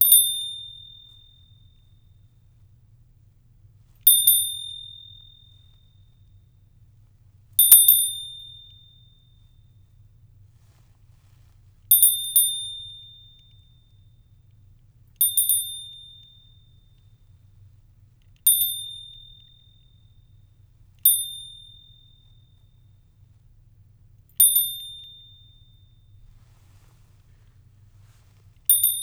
do the chimes echo?
yes